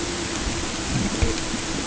{"label": "ambient", "recorder": "HydroMoth"}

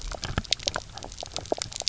{"label": "biophony, knock croak", "recorder": "SoundTrap 300"}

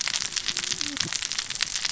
{"label": "biophony, cascading saw", "recorder": "SoundTrap 600 or HydroMoth"}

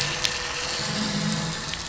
{"label": "anthrophony, boat engine", "recorder": "SoundTrap 500"}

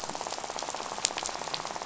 {"label": "biophony, rattle", "recorder": "SoundTrap 500"}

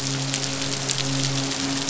{"label": "biophony, midshipman", "recorder": "SoundTrap 500"}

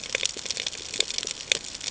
{"label": "ambient", "recorder": "HydroMoth"}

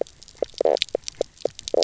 {"label": "biophony, knock croak", "recorder": "SoundTrap 300"}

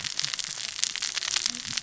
{"label": "biophony, cascading saw", "recorder": "SoundTrap 600 or HydroMoth"}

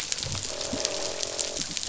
{"label": "biophony, croak", "recorder": "SoundTrap 500"}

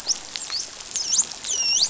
{"label": "biophony, dolphin", "recorder": "SoundTrap 500"}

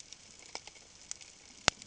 {"label": "ambient", "recorder": "HydroMoth"}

